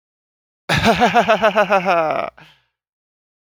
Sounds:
Laughter